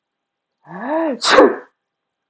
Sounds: Sneeze